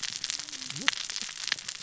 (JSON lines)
{"label": "biophony, cascading saw", "recorder": "SoundTrap 600 or HydroMoth"}